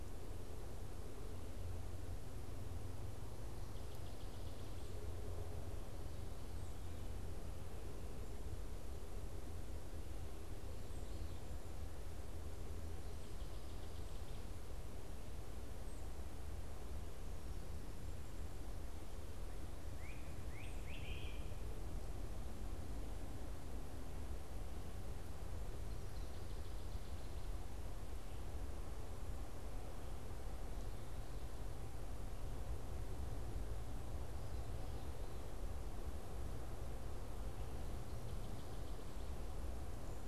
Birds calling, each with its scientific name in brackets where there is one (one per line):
Great Crested Flycatcher (Myiarchus crinitus)
Northern Waterthrush (Parkesia noveboracensis)